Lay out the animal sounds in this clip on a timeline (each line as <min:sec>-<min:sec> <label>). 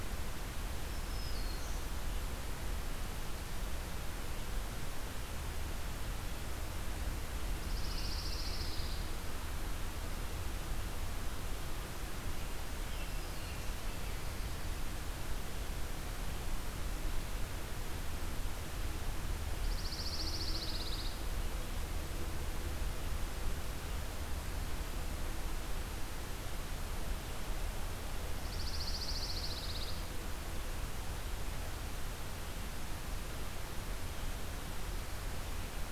0:00.7-0:01.9 Black-throated Green Warbler (Setophaga virens)
0:07.4-0:09.1 Pine Warbler (Setophaga pinus)
0:12.8-0:14.2 American Robin (Turdus migratorius)
0:12.8-0:13.7 Black-throated Green Warbler (Setophaga virens)
0:19.4-0:21.2 Pine Warbler (Setophaga pinus)
0:28.3-0:30.1 Pine Warbler (Setophaga pinus)